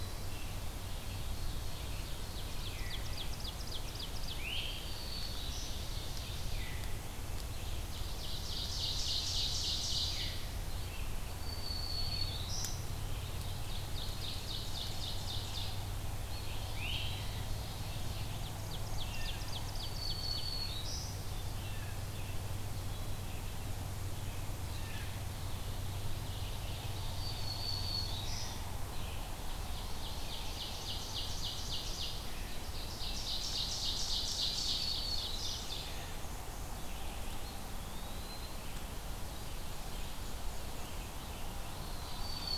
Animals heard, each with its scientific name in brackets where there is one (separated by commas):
Great Crested Flycatcher (Myiarchus crinitus), Black-throated Green Warbler (Setophaga virens), Black-and-white Warbler (Mniotilta varia), Blue Jay (Cyanocitta cristata), Ovenbird (Seiurus aurocapilla), Red-eyed Vireo (Vireo olivaceus), Eastern Wood-Pewee (Contopus virens)